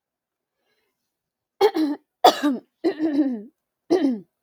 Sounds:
Throat clearing